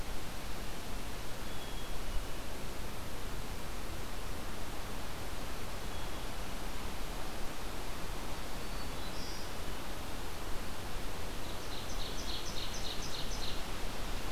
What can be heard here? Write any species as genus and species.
Poecile atricapillus, Setophaga virens, Seiurus aurocapilla